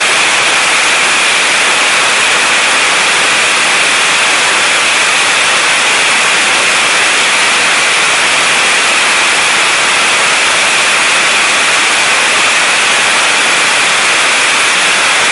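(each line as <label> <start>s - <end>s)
An extremely loud roar of a jet turbine. 0.0s - 15.3s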